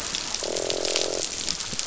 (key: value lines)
label: biophony, croak
recorder: SoundTrap 500